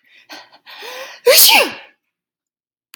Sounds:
Sneeze